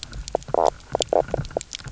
{"label": "biophony, knock croak", "recorder": "SoundTrap 300"}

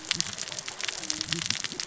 {"label": "biophony, cascading saw", "recorder": "SoundTrap 600 or HydroMoth"}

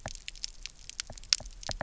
{"label": "biophony, knock", "recorder": "SoundTrap 300"}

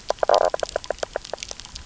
{"label": "biophony, knock croak", "recorder": "SoundTrap 300"}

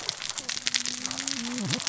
{"label": "biophony, cascading saw", "recorder": "SoundTrap 600 or HydroMoth"}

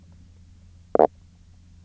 {"label": "biophony, knock croak", "recorder": "SoundTrap 300"}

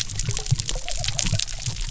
{"label": "biophony", "recorder": "SoundTrap 300"}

